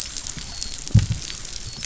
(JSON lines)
{"label": "biophony, dolphin", "recorder": "SoundTrap 500"}